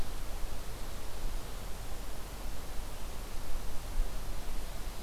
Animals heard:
forest ambience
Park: Marsh-Billings-Rockefeller National Historical Park